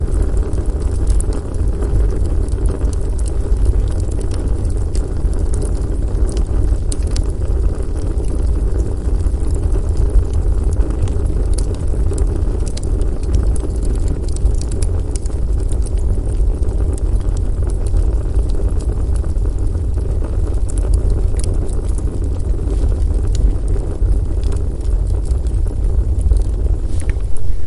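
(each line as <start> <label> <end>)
0.2 Firewood crackling in a chimney. 27.7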